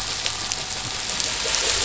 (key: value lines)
label: anthrophony, boat engine
recorder: SoundTrap 500